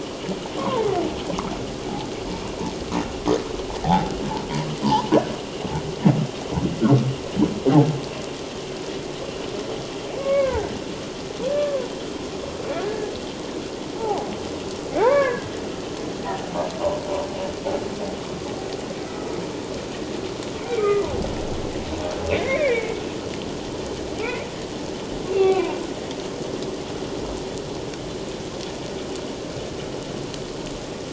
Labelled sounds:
0.6	0.9	humpback whale, 0.81 to 1.2 kHz
3.8	5.1	humpback whale, 0.78 to 1.1 kHz
10.1	10.7	humpback whale, 0.78 to 2.5 kHz
11.5	11.9	humpback whale, 0.88 to 1.8 kHz
12.8	13.1	humpback whale, 1.6 to 1.8 kHz
14.0	15.5	humpback whale, 0.78 to 2.3 kHz
20.7	21.1	humpback whale, 1.2 to 2.4 kHz
22.3	22.9	humpback whale, 1.6 to 2.8 kHz
25.3	25.8	humpback whale, 0.88 to 2.8 kHz

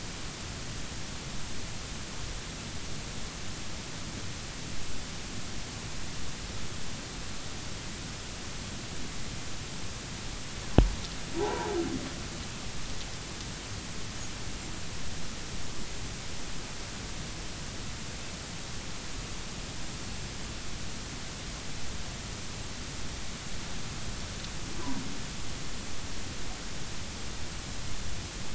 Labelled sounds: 11.3	11.8	humpback whale, 0.80 to 1.1 kHz

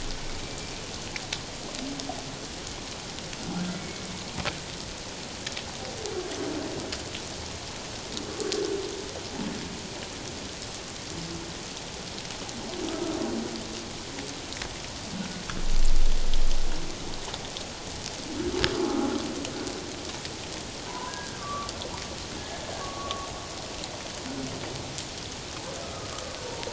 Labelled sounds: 3.8	4.0	humpback whale, 2.2 to 2.3 kHz
20.9	21.7	humpback whale, 0.84 to 1.7 kHz
22.8	23.3	humpback whale, 1.1 to 1.2 kHz
25.8	26.7	humpback whale, 0.88 to 1.4 kHz

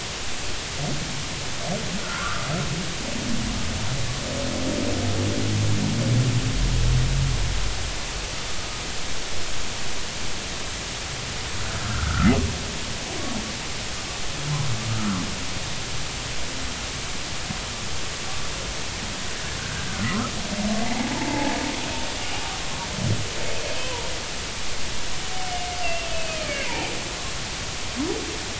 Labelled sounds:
2.0	2.4	humpback whale, 0.93 to 1.6 kHz
11.6	12.3	humpback whale, 1.2 to 1.6 kHz
15.0	15.2	humpback whale, 0.99 to 1.5 kHz
19.8	20.3	humpback whale, 1.2 to 1.7 kHz
20.8	21.6	humpback whale, 0.80 to 0.99 kHz
22.2	22.4	humpback whale, 2.8 to 2.9 kHz
23.8	24.1	humpback whale, 0.90 to 1.1 kHz
25.8	26.8	humpback whale, 1.9 to 2.8 kHz

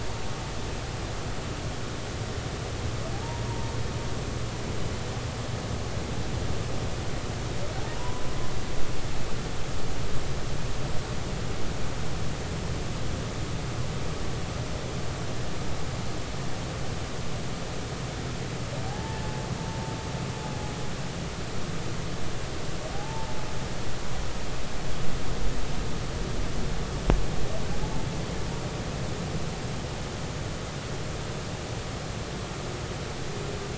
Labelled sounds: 3.5	3.7	humpback whale, 0.86 to 0.99 kHz
7.9	8.2	humpback whale, 0.93 to 1.1 kHz
18.9	19.2	humpback whale, 0.80 to 0.93 kHz
22.9	23.4	humpback whale, 0.80 to 0.96 kHz
27.8	28.1	humpback whale, 0.80 to 0.93 kHz

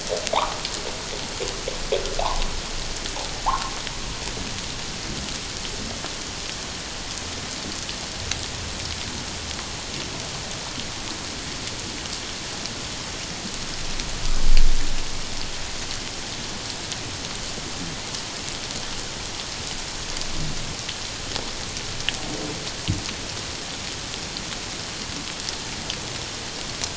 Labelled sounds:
3.4	3.7	humpback whale, 0.78 to 1.5 kHz

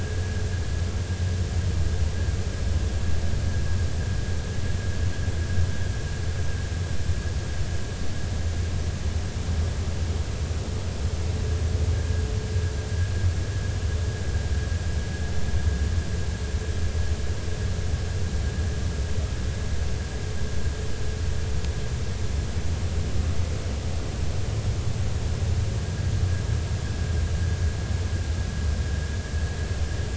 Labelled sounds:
11.9	12.2	vessel noise, 1.6 to 1.8 kHz

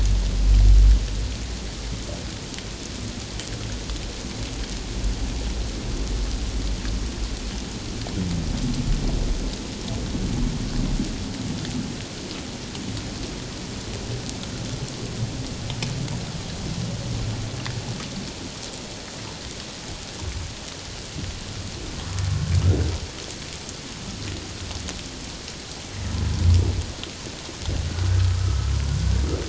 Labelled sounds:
28.2	28.7	humpback whale, 1.2 to 1.4 kHz

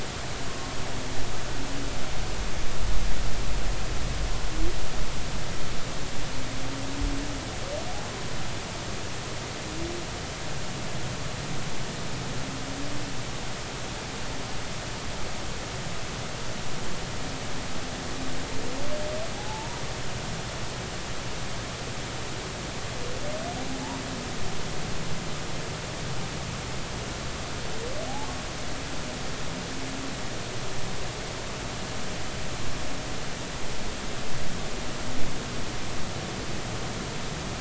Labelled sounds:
0.5	0.7	humpback whale, 1.0 to 1.1 kHz
19.4	19.8	humpback whale, 0.80 to 1.0 kHz

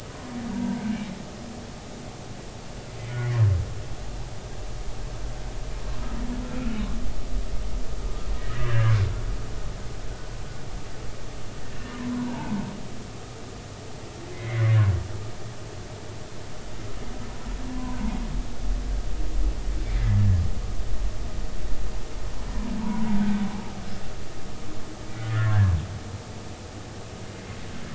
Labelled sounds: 8.4	8.9	humpback whale, 1.5 to 2.0 kHz
11.9	12.6	humpback whale, 0.83 to 1.1 kHz
14.3	14.6	humpback whale, 1.9 to 2.2 kHz
17.7	18.0	humpback whale, 0.90 to 1.1 kHz
19.8	20.2	humpback whale, 1.9 to 2.4 kHz
22.8	23.1	humpback whale, 0.86 to 1.0 kHz
25.1	25.5	humpback whale, 1.6 to 2.1 kHz

